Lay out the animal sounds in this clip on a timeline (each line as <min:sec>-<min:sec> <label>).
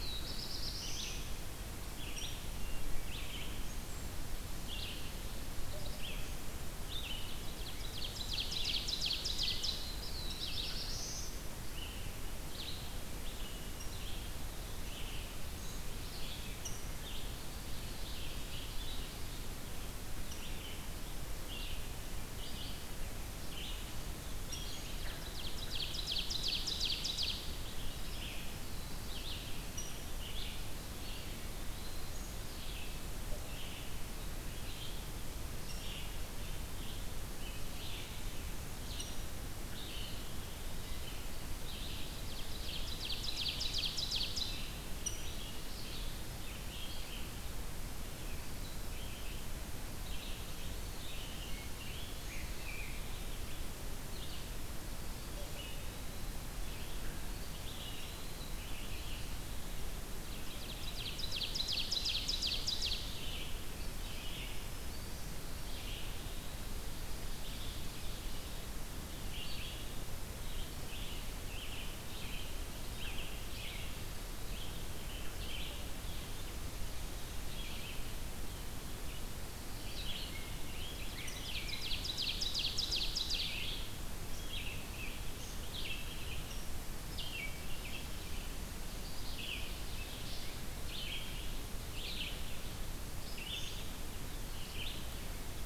0:00.0-0:01.7 Black-throated Blue Warbler (Setophaga caerulescens)
0:00.0-1:35.0 Red-eyed Vireo (Vireo olivaceus)
0:02.0-0:02.5 Rose-breasted Grosbeak (Pheucticus ludovicianus)
0:07.0-0:09.8 Ovenbird (Seiurus aurocapilla)
0:09.6-0:11.5 Black-throated Blue Warbler (Setophaga caerulescens)
0:10.3-0:10.4 Rose-breasted Grosbeak (Pheucticus ludovicianus)
0:13.7-0:13.9 Rose-breasted Grosbeak (Pheucticus ludovicianus)
0:15.6-0:15.8 Rose-breasted Grosbeak (Pheucticus ludovicianus)
0:16.6-0:16.8 Rose-breasted Grosbeak (Pheucticus ludovicianus)
0:24.5-0:24.6 Rose-breasted Grosbeak (Pheucticus ludovicianus)
0:24.7-0:27.5 Ovenbird (Seiurus aurocapilla)
0:29.7-0:29.9 Rose-breasted Grosbeak (Pheucticus ludovicianus)
0:31.1-0:32.1 Eastern Wood-Pewee (Contopus virens)
0:35.6-0:35.9 Rose-breasted Grosbeak (Pheucticus ludovicianus)
0:39.0-0:39.2 Rose-breasted Grosbeak (Pheucticus ludovicianus)
0:39.9-0:41.6 Eastern Wood-Pewee (Contopus virens)
0:42.0-0:44.7 Ovenbird (Seiurus aurocapilla)
0:45.0-0:45.4 Rose-breasted Grosbeak (Pheucticus ludovicianus)
0:50.7-0:53.0 Rose-breasted Grosbeak (Pheucticus ludovicianus)
0:57.0-0:58.6 Eastern Wood-Pewee (Contopus virens)
1:00.1-1:03.3 Ovenbird (Seiurus aurocapilla)
1:20.3-1:22.1 Rose-breasted Grosbeak (Pheucticus ludovicianus)
1:20.9-1:23.7 Ovenbird (Seiurus aurocapilla)